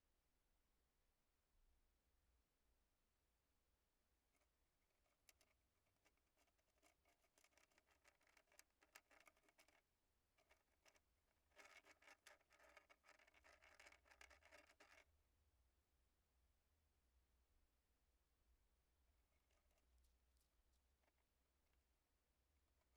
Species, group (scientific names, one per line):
Acheta domesticus
Orthoptera